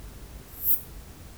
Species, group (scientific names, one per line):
Poecilimon affinis
Orthoptera